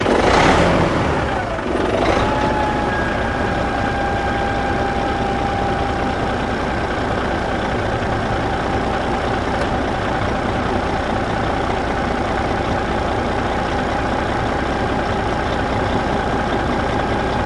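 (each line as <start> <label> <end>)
0.0 A truck engine starts. 2.8
2.8 A truck engine roars constantly. 17.5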